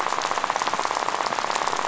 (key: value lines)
label: biophony, rattle
recorder: SoundTrap 500